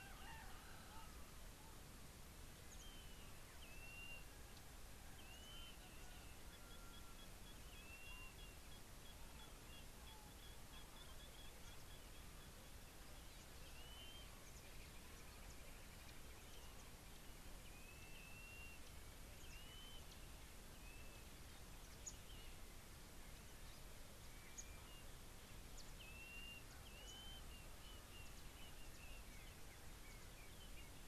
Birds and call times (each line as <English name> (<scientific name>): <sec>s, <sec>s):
Blue-naped Mousebird (Urocolius macrourus): 4.0s, 8.0s, 19.8s, 26.4s
Nubian Woodpecker (Campethera nubica): 9.1s